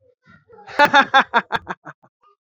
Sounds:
Laughter